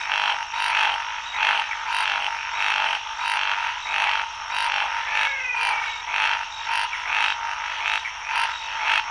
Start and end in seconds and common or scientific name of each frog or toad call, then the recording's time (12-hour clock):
0.0	9.1	Scinax fuscovarius
4.6	6.4	menwig frog
6.9	7.0	Pithecopus azureus
8.0	8.2	Pithecopus azureus
4:00am